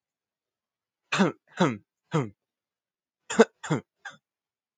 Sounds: Cough